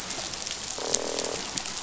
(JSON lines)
{"label": "biophony, croak", "recorder": "SoundTrap 500"}